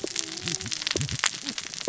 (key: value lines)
label: biophony, cascading saw
recorder: SoundTrap 600 or HydroMoth